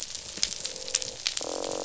{"label": "biophony, croak", "recorder": "SoundTrap 500"}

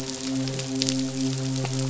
{"label": "biophony, midshipman", "recorder": "SoundTrap 500"}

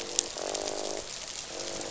{"label": "biophony, croak", "recorder": "SoundTrap 500"}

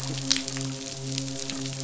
{"label": "biophony, midshipman", "recorder": "SoundTrap 500"}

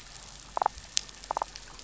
{"label": "biophony, damselfish", "recorder": "SoundTrap 500"}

